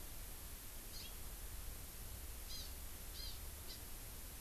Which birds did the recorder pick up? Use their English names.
Hawaii Amakihi